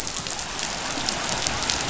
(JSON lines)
{"label": "biophony", "recorder": "SoundTrap 500"}